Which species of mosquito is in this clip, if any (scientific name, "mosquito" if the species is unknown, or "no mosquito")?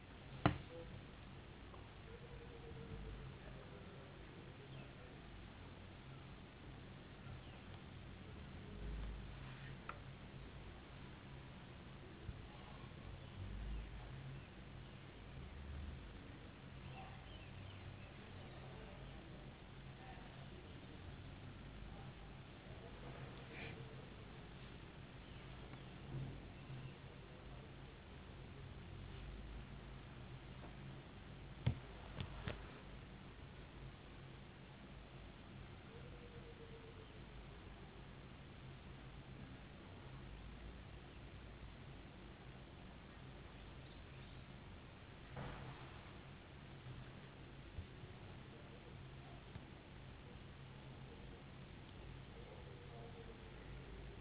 no mosquito